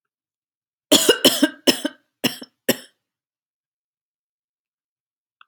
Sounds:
Cough